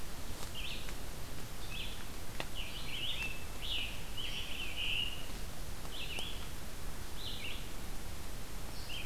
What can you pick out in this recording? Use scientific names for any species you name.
Vireo olivaceus, Piranga olivacea